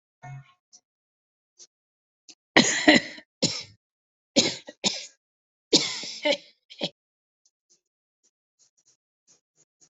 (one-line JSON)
{"expert_labels": [{"quality": "good", "cough_type": "dry", "dyspnea": false, "wheezing": false, "stridor": false, "choking": false, "congestion": false, "nothing": true, "diagnosis": "obstructive lung disease", "severity": "mild"}], "age": 33, "gender": "female", "respiratory_condition": false, "fever_muscle_pain": false, "status": "healthy"}